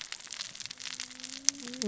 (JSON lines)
{"label": "biophony, cascading saw", "recorder": "SoundTrap 600 or HydroMoth"}